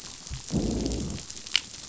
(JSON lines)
{"label": "biophony, growl", "recorder": "SoundTrap 500"}